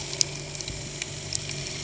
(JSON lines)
{"label": "anthrophony, boat engine", "recorder": "HydroMoth"}